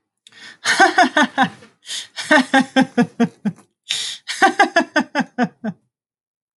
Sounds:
Laughter